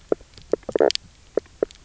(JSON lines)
{"label": "biophony, knock croak", "recorder": "SoundTrap 300"}